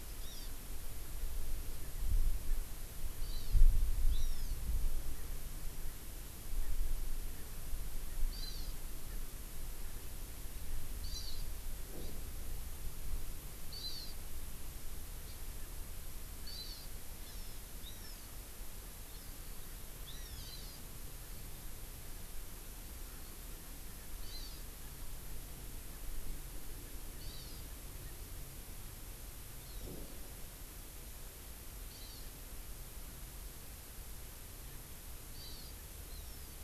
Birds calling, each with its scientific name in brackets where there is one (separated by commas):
Erckel's Francolin (Pternistis erckelii), Hawaii Amakihi (Chlorodrepanis virens)